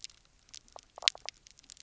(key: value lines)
label: biophony, knock croak
recorder: SoundTrap 300